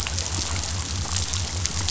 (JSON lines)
{"label": "biophony", "recorder": "SoundTrap 500"}